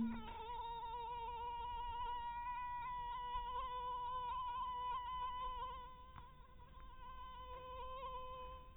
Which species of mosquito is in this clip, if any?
mosquito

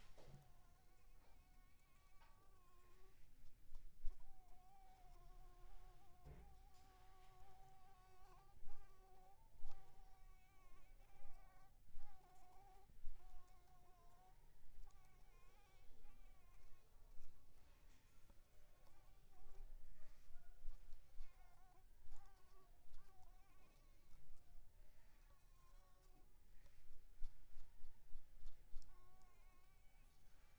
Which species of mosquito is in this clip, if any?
Anopheles arabiensis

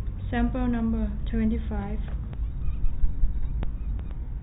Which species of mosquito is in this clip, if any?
no mosquito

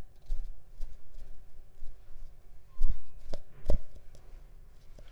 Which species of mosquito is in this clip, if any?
Mansonia africanus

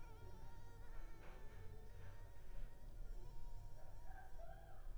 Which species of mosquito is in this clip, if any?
Culex pipiens complex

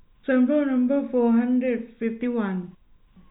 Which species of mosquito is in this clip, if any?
no mosquito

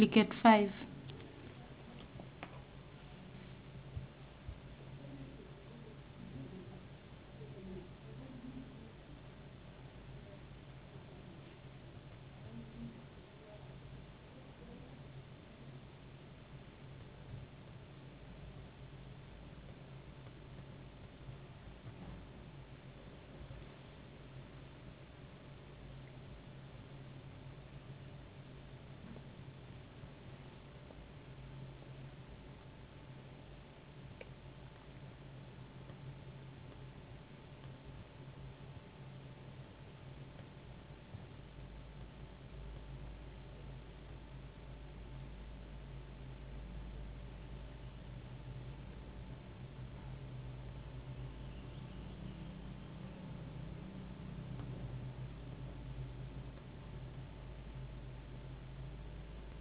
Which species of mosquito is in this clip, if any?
no mosquito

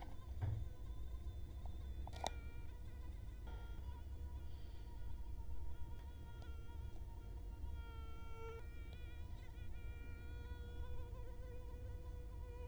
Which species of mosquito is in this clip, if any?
Culex quinquefasciatus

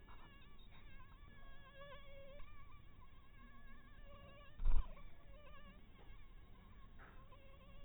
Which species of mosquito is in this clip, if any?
mosquito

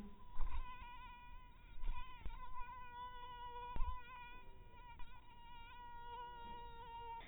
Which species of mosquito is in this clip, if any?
mosquito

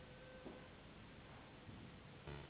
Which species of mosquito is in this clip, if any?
Anopheles gambiae s.s.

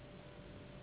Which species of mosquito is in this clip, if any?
Anopheles gambiae s.s.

